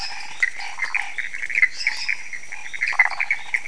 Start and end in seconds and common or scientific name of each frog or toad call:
0.0	1.2	Chaco tree frog
0.0	3.6	dwarf tree frog
1.6	2.2	lesser tree frog
1.8	3.6	Chaco tree frog